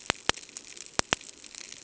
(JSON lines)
{"label": "ambient", "recorder": "HydroMoth"}